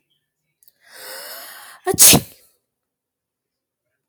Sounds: Sneeze